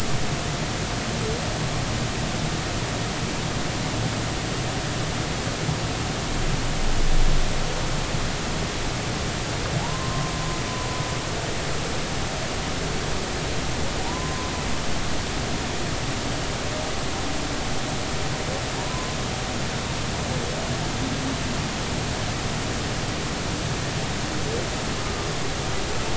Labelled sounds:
9.8	11.0	humpback whale, 0.80 to 1.1 kHz
14.0	14.5	humpback whale, 0.86 to 1.1 kHz
18.9	19.2	humpback whale, 0.96 to 1.1 kHz

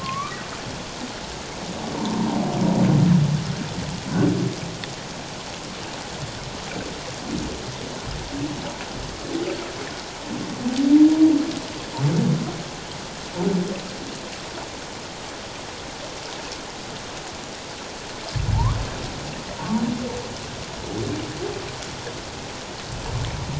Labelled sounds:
0.0	0.4	humpback whale, 1.0 to 2.5 kHz
2.0	2.2	humpback whale, 0.88 to 1.1 kHz

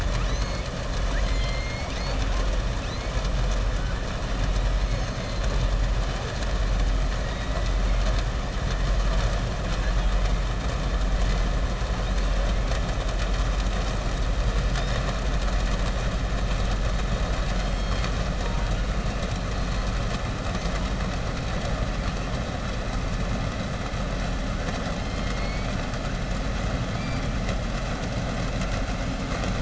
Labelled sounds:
0.0	0.6	killer whale, southern resident, 1.3 to 6.9 kHz
1.0	1.6	killer whale, southern resident, 1.0 to 5.0 kHz

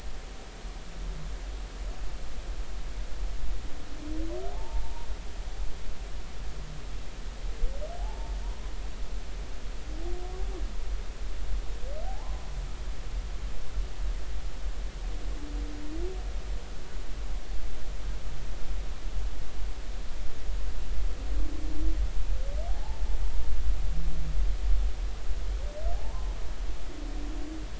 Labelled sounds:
4.5	5.1	humpback whale, 0.80 to 0.99 kHz
8.0	8.7	humpback whale, 0.80 to 1.1 kHz
12.0	12.5	humpback whale, 0.80 to 1.1 kHz
22.7	23.0	humpback whale, 0.80 to 0.96 kHz
25.9	26.3	humpback whale, 0.80 to 1.1 kHz

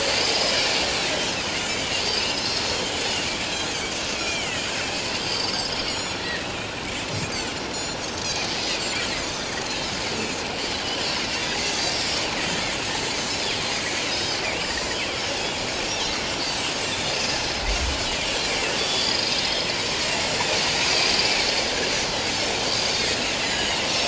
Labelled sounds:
0.0	0.6	Pacific white-sided dolphin, 4.5 to 5.2 kHz
1.6	3.7	Pacific white-sided dolphin, 2.4 to 7.6 kHz
4.1	6.6	Pacific white-sided dolphin, 1.7 to 7.0 kHz
7.3	8.0	Pacific white-sided dolphin, 4.0 to 7.1 kHz
8.5	9.9	Pacific white-sided dolphin, 1.9 to 6.2 kHz
11.4	12.2	Pacific white-sided dolphin, 4.9 to 7.0 kHz
14.1	14.4	Pacific white-sided dolphin, 3.7 to 5.2 kHz
14.7	15.9	Pacific white-sided dolphin, 3.2 to 7.4 kHz
16.9	17.6	Pacific white-sided dolphin, 3.3 to 5.2 kHz
18.8	19.4	Pacific white-sided dolphin, 3.4 to 5.3 kHz
22.7	23.9	Pacific white-sided dolphin, 2.7 to 7.2 kHz

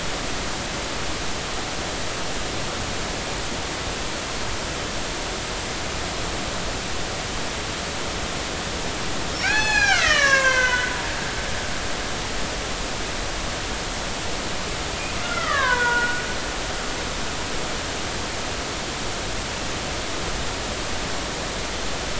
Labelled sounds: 9.4	11.0	killer whale, Bigg's (transient), 0.80 to 7.8 kHz
15.2	16.2	killer whale, Bigg's (transient), 0.90 to 3.4 kHz

